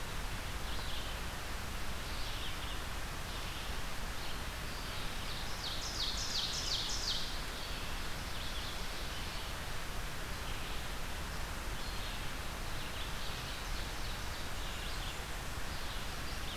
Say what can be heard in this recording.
Red-eyed Vireo, Ovenbird